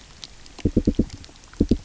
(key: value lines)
label: biophony
recorder: SoundTrap 300